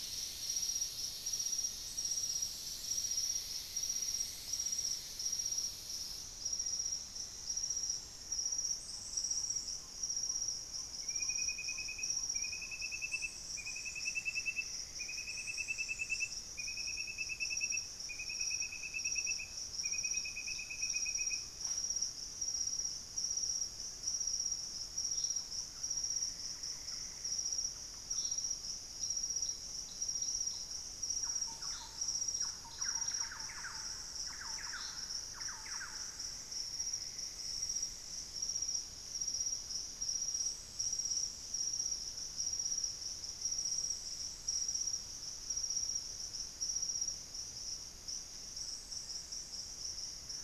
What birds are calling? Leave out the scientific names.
Black-faced Antthrush, Ferruginous Pygmy-Owl, Thrush-like Wren